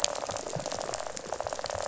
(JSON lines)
{"label": "biophony, rattle", "recorder": "SoundTrap 500"}